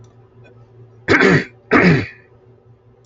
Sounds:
Throat clearing